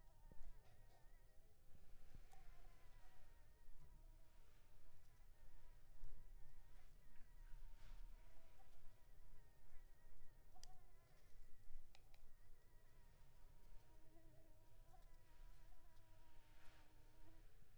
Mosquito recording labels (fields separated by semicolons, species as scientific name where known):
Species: Anopheles arabiensis; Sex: female; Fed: unfed; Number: one; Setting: cup